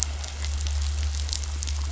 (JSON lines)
{"label": "anthrophony, boat engine", "recorder": "SoundTrap 500"}